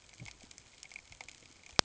{"label": "ambient", "recorder": "HydroMoth"}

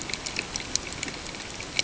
{"label": "ambient", "recorder": "HydroMoth"}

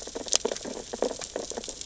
{"label": "biophony, sea urchins (Echinidae)", "recorder": "SoundTrap 600 or HydroMoth"}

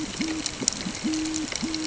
{"label": "ambient", "recorder": "HydroMoth"}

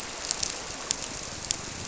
{"label": "biophony", "recorder": "SoundTrap 300"}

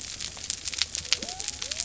{"label": "biophony", "recorder": "SoundTrap 300"}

